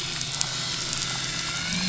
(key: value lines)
label: anthrophony, boat engine
recorder: SoundTrap 500